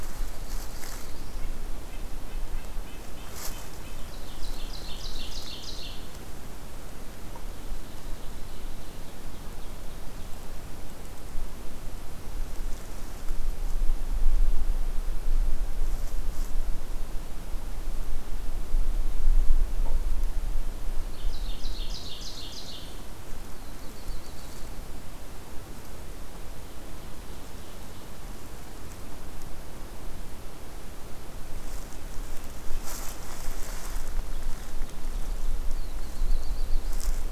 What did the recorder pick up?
Black-throated Blue Warbler, Red-breasted Nuthatch, Ovenbird